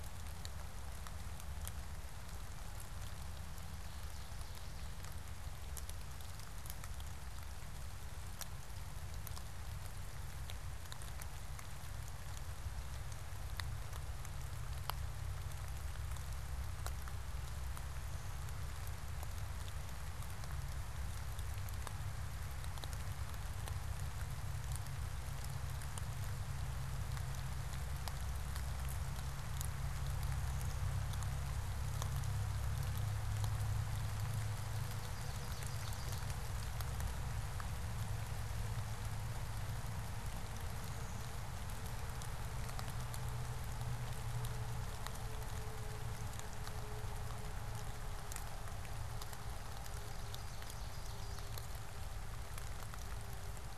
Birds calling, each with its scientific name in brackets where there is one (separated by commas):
Blue-winged Warbler (Vermivora cyanoptera), Ovenbird (Seiurus aurocapilla)